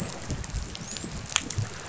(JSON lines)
{"label": "biophony, dolphin", "recorder": "SoundTrap 500"}